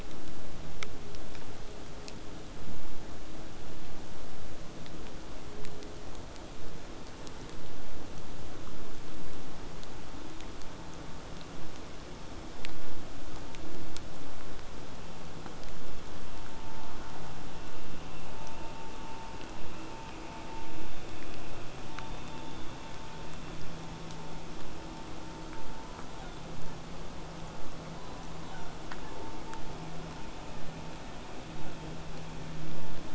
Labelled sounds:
17.6	22.6	vessel noise, 0 to 8.0 kHz
26.1	26.8	killer whale, southern resident, J pod, call S07, 0.47 to 3.7 kHz
28.0	29.2	killer whale, southern resident, J pod, call S07, 0.80 to 7.2 kHz

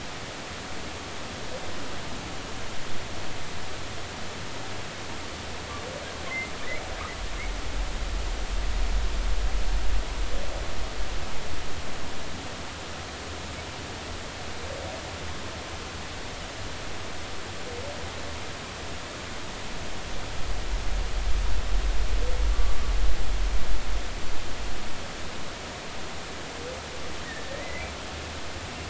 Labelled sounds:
6.3	6.5	humpback whale, 2.0 to 2.3 kHz
22.5	22.8	humpback whale, 1.1 to 1.2 kHz
27.2	27.9	humpback whale, 1.7 to 2.1 kHz

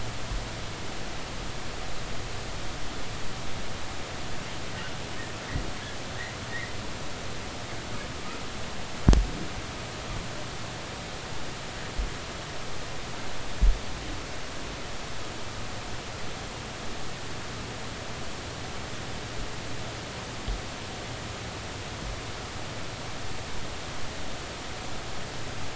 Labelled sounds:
6.5	6.8	humpback whale, 1.8 to 2.1 kHz

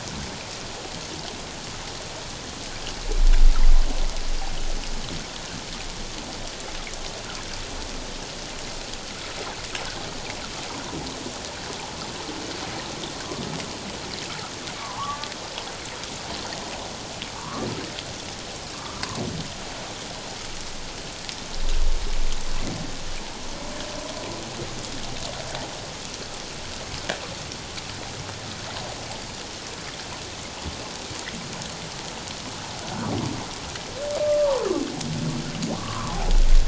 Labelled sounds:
14.8	15.3	humpback whale, 0.78 to 1.3 kHz
17.4	17.7	humpback whale, 0.88 to 1.4 kHz
18.7	19.0	humpback whale, 1.0 to 1.4 kHz
34.2	34.7	humpback whale, 0.84 to 1.2 kHz
35.8	36.2	humpback whale, 0.94 to 1.3 kHz

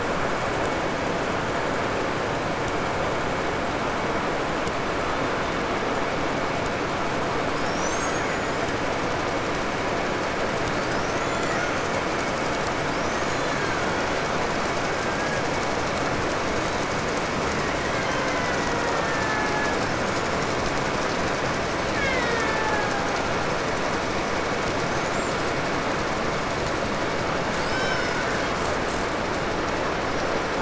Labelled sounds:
7.4	8.9	killer whale, 0.85 to 8.0 kHz
10.5	12.4	killer whale, 0.79 to 7.4 kHz
12.9	14.3	killer whale, 0.92 to 7.0 kHz
14.7	15.5	killer whale, 0.83 to 1.9 kHz
17.5	20.0	killer whale, Bigg's (transient), call T08, 0.35 to 3.4 kHz
21.7	23.5	killer whale, Bigg's (transient), call T08, 0.61 to 6.8 kHz
24.8	25.6	killer whale, 5.1 to 7.7 kHz
27.3	28.6	killer whale, Bigg's (transient), 0.82 to 5.7 kHz

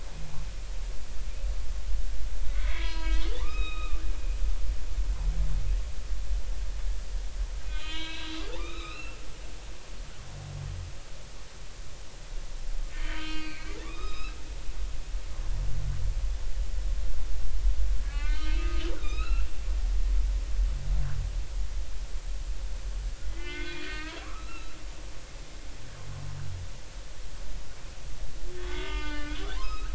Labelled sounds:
2.5	4.0	humpback whale, 0.86 to 5.0 kHz
7.6	9.2	humpback whale, 0.83 to 4.3 kHz
12.9	14.4	humpback whale, 1.0 to 5.3 kHz
18.0	19.5	humpback whale, 1.1 to 4.4 kHz
23.2	24.7	humpback whale, 1.0 to 3.5 kHz
28.6	29.9	humpback whale, 0.86 to 5.3 kHz

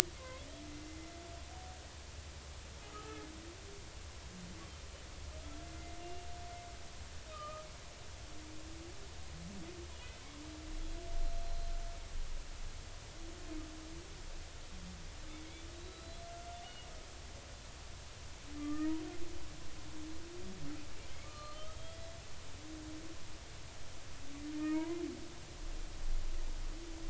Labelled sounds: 0.2	0.5	humpback whale, 0.96 to 2.2 kHz
2.9	3.3	humpback whale, 1.1 to 1.4 kHz
5.8	6.0	humpback whale, 2.0 to 2.1 kHz
7.0	7.7	humpback whale, 1.1 to 2.9 kHz
15.8	16.9	humpback whale, 2.8 to 4.1 kHz
18.6	19.0	humpback whale, 1.1 to 2.0 kHz
21.2	22.0	humpback whale, 1.1 to 4.3 kHz
24.6	25.0	humpback whale, 0.90 to 2.5 kHz

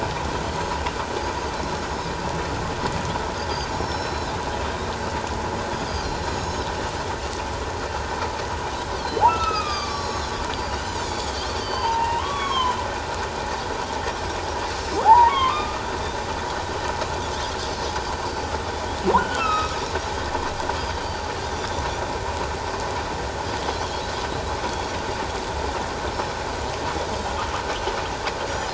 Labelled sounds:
1.8	2.1	Pacific white-sided dolphin, 5.0 to 6.8 kHz
3.7	4.4	Pacific white-sided dolphin, 3.7 to 5.6 kHz
6.0	6.7	Pacific white-sided dolphin, 3.8 to 6.8 kHz
9.0	10.3	Pacific white-sided dolphin, 1.1 to 7.0 kHz
9.2	10.3	humpback whale, 2.3 to 5.6 kHz
10.5	12.8	Pacific white-sided dolphin, 0.81 to 6.8 kHz
11.6	11.9	humpback whale, 4.4 to 4.8 kHz
15.0	15.8	humpback whale, 0.78 to 2.3 kHz
19.2	19.8	humpback whale, 1.2 to 4.0 kHz
20.8	21.8	Pacific white-sided dolphin, 3.0 to 5.0 kHz
28.5	28.7	Pacific white-sided dolphin, 5.7 to 6.1 kHz

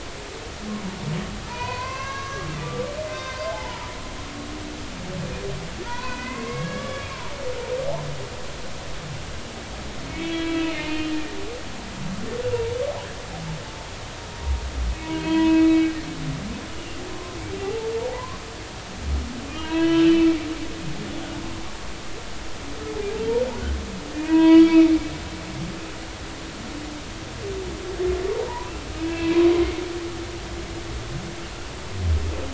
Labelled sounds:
1.5	3.9	humpback whale, 0.80 to 6.0 kHz
5.8	7.1	humpback whale, 0.90 to 2.7 kHz
10.1	11.2	humpback whale, 2.2 to 4.1 kHz
15.0	15.9	humpback whale, 0.93 to 4.2 kHz
17.1	17.4	humpback whale, 0.99 to 1.1 kHz
17.6	18.4	humpback whale, 0.80 to 1.2 kHz
19.5	20.1	humpback whale, 0.90 to 3.7 kHz
24.1	24.9	humpback whale, 0.90 to 4.6 kHz
28.5	29.4	humpback whale, 0.83 to 2.7 kHz

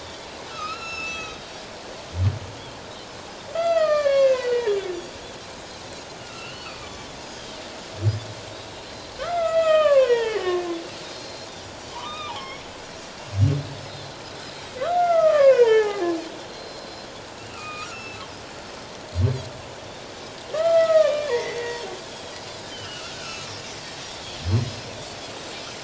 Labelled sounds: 0.0	1.5	Pacific white-sided dolphin, 3.1 to 6.0 kHz
0.5	1.5	humpback whale, 1.2 to 5.6 kHz
3.5	4.8	humpback whale, 1.0 to 5.2 kHz
6.2	7.1	humpback whale, 1.2 to 6.3 kHz
6.8	7.1	Pacific white-sided dolphin, 1.1 to 1.2 kHz
8.8	9.1	Pacific white-sided dolphin, 4.0 to 4.2 kHz
9.2	11.5	humpback whale, 0.81 to 8.0 kHz
10.0	10.7	Pacific white-sided dolphin, 1.0 to 3.4 kHz
11.9	12.6	humpback whale, 0.91 to 5.6 kHz
13.9	14.2	Pacific white-sided dolphin, 4.0 to 4.2 kHz
14.9	16.0	humpback whale, 0.78 to 3.3 kHz
16.5	17.1	Pacific white-sided dolphin, 4.0 to 5.2 kHz
17.3	18.2	humpback whale, 1.1 to 2.9 kHz
20.5	21.7	humpback whale, 0.81 to 3.5 kHz
21.4	21.8	Pacific white-sided dolphin, 4.5 to 4.6 kHz
22.5	23.5	Pacific white-sided dolphin, 1.2 to 6.7 kHz
24.4	24.8	Pacific white-sided dolphin, 5.1 to 5.3 kHz

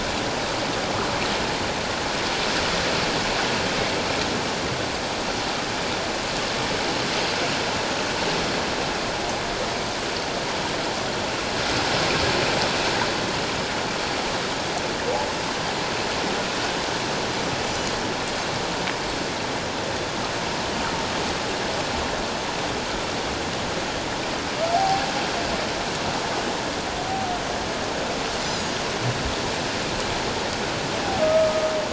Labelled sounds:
24.7	25.0	humpback whale, 0.78 to 0.84 kHz
28.4	28.7	Pacific white-sided dolphin, 4.7 to 5.2 kHz
31.2	31.6	humpback whale, 1.2 to 1.3 kHz

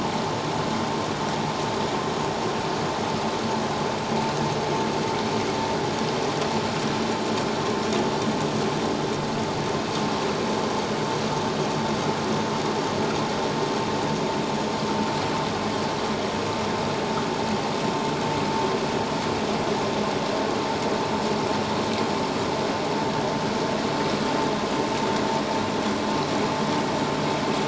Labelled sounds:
14.5	14.8	vessel noise, 6.5 to 6.9 kHz

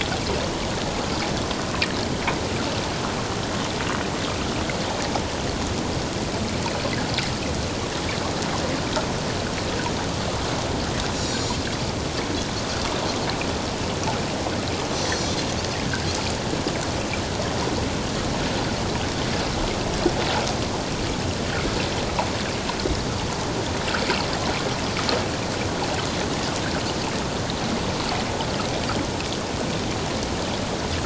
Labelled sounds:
11.2	11.6	Pacific white-sided dolphin, 3.7 to 7.3 kHz
14.9	15.4	Pacific white-sided dolphin, 4.2 to 7.8 kHz

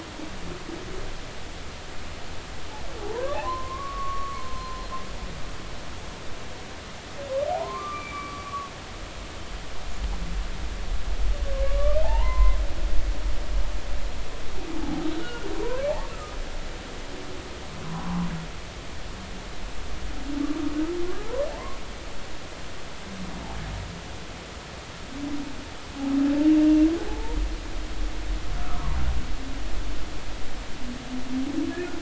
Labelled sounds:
3.0	4.8	humpback whale, 0.80 to 1.2 kHz
7.5	8.7	humpback whale, 0.80 to 2.4 kHz
11.8	12.6	humpback whale, 0.80 to 2.1 kHz
14.8	15.5	humpback whale, 0.80 to 1.5 kHz
15.9	16.4	humpback whale, 0.80 to 1.4 kHz
17.8	18.3	humpback whale, 0.80 to 1.2 kHz
20.4	20.7	humpback whale, 1.1 to 1.3 kHz
27.1	27.4	humpback whale, 0.80 to 0.99 kHz
28.6	29.0	humpback whale, 0.90 to 1.4 kHz

